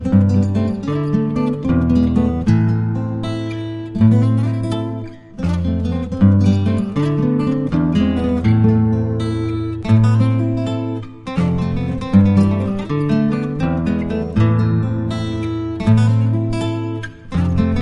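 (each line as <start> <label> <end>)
0.0 A guitar is played with clear, harmonious tones flowing smoothly. 17.8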